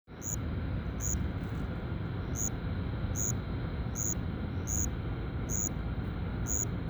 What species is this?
Miogryllus verticalis